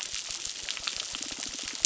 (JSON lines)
{"label": "biophony", "recorder": "SoundTrap 600"}